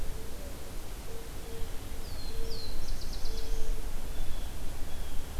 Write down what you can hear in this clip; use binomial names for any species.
Setophaga caerulescens, Cyanocitta cristata